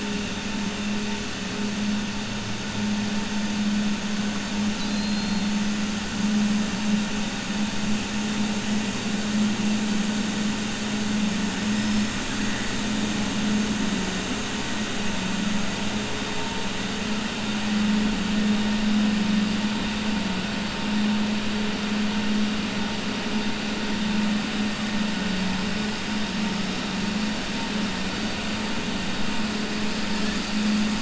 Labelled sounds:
4.7	5.5	killer whale, 3.5 to 5.1 kHz

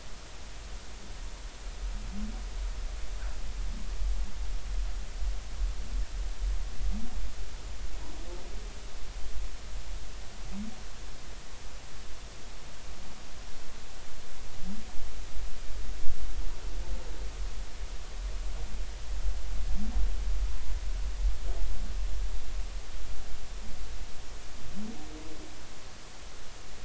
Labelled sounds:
20.5	20.7	humpback whale, 0.93 to 1.1 kHz

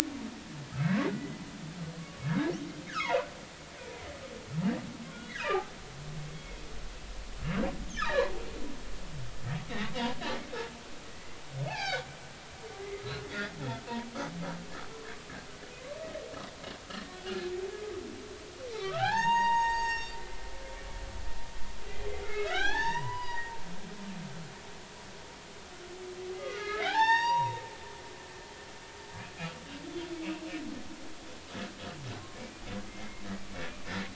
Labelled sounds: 0.7	1.4	humpback whale, 1.5 to 2.0 kHz
2.0	3.3	humpback whale, 0.80 to 1.8 kHz
5.1	5.6	humpback whale, 1.2 to 3.6 kHz
6.3	6.6	humpback whale, 2.1 to 2.2 kHz
8.0	8.3	humpback whale, 1.5 to 4.2 kHz
9.7	9.9	humpback whale, 1.8 to 2.3 kHz
11.1	11.4	humpback whale, 1.9 to 2.1 kHz
11.7	12.1	humpback whale, 0.80 to 5.6 kHz
12.9	13.9	humpback whale, 1.2 to 1.5 kHz
16.9	17.2	humpback whale, 1.7 to 1.9 kHz
18.8	20.4	humpback whale, 0.80 to 7.5 kHz
22.2	23.5	humpback whale, 0.80 to 5.9 kHz
26.3	27.6	humpback whale, 0.80 to 7.6 kHz
32.3	33.2	humpback whale, 2.0 to 2.5 kHz

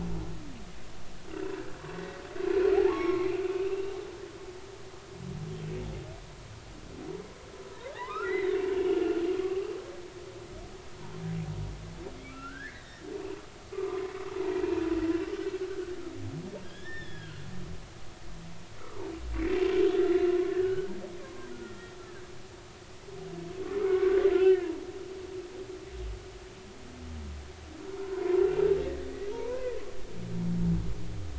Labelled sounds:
1.3	1.6	humpback whale, 2.6 to 2.8 kHz
2.8	4.0	humpback whale, 0.80 to 2.8 kHz
7.7	9.0	humpback whale, 0.80 to 4.1 kHz
9.4	9.7	humpback whale, 1.1 to 1.3 kHz
12.3	14.1	humpback whale, 0.93 to 4.0 kHz
16.6	17.4	humpback whale, 1.4 to 5.5 kHz
20.5	20.9	humpback whale, 1.3 to 3.0 kHz
21.2	22.0	humpback whale, 0.93 to 1.9 kHz
23.8	24.7	humpback whale, 1.0 to 2.0 kHz
25.4	25.7	humpback whale, 2.7 to 3.1 kHz
28.0	28.6	humpback whale, 0.93 to 2.8 kHz
29.3	29.7	humpback whale, 0.86 to 1.1 kHz

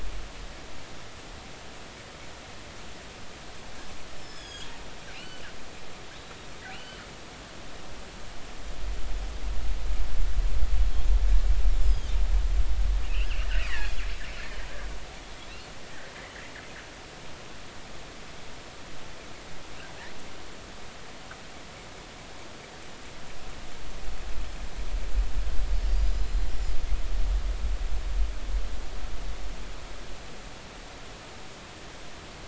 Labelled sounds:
4.0	4.7	killer whale, northern resident, G clan, 1.6 to 8.0 kHz
4.3	4.7	killer whale, northern resident, G clan, GI subclan, call N23i, 3.2 to 3.5 kHz
5.1	5.4	killer whale, northern resident, G clan, GI subclan, call N23i, 2.5 to 3.1 kHz
6.7	7.0	killer whale, northern resident, G clan, 2.6 to 3.1 kHz
11.8	12.2	killer whale, northern resident, G clan, 3.0 to 5.2 kHz
13.1	14.4	killer whale, northern resident, G clan, 1.6 to 5.4 kHz
25.9	26.5	killer whale, northern resident, G clan, 3.9 to 7.3 kHz

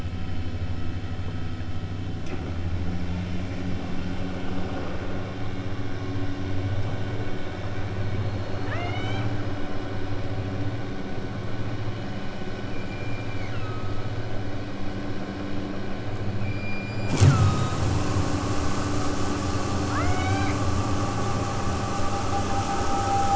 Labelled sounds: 8.0	9.3	killer whale, southern Alaska resident, 0.41 to 8.0 kHz
12.6	14.0	killer whale, southern Alaska resident, 0.91 to 8.0 kHz
16.4	17.9	killer whale, southern Alaska resident, 1.0 to 8.0 kHz
19.9	20.7	killer whale, southern Alaska resident, 0.69 to 8.0 kHz

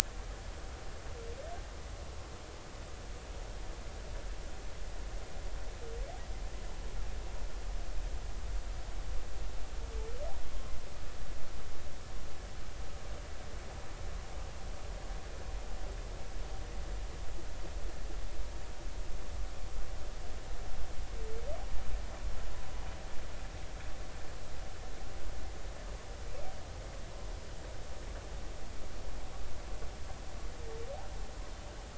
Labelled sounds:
10.5	10.7	humpback whale, 1.0 to 1.1 kHz

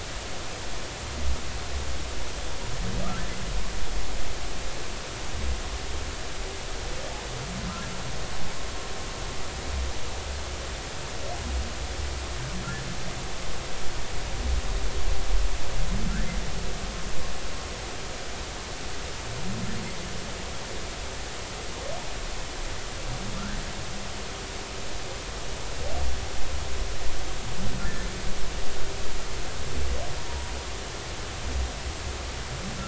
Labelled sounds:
30.3	30.5	humpback whale, 0.86 to 0.99 kHz

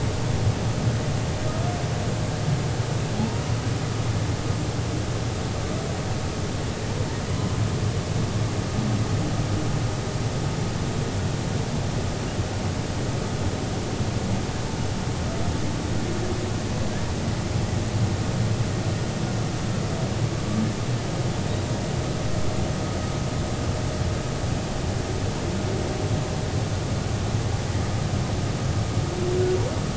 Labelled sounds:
7.3	7.6	humpback whale, 2.9 to 3.1 kHz

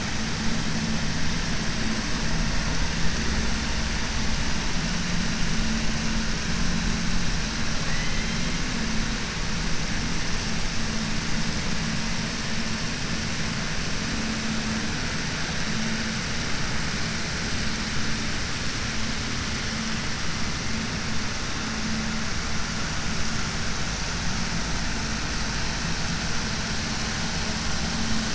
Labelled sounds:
7.8	8.5	killer whale, 1.1 to 4.0 kHz

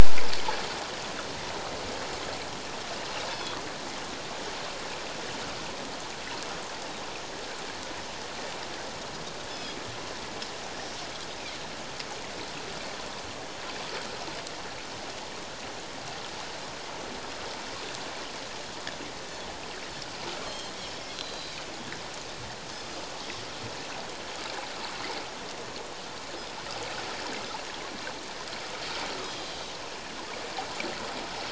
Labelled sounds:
3.3	3.6	Pacific white-sided dolphin, 3.3 to 3.6 kHz
9.5	9.8	Pacific white-sided dolphin, 3.2 to 5.3 kHz
20.4	21.6	Pacific white-sided dolphin, 3.1 to 4.4 kHz

